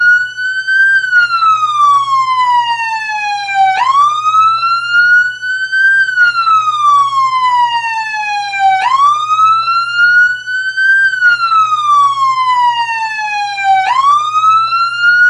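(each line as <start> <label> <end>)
0.0 A siren wails with a rising and falling pattern. 15.3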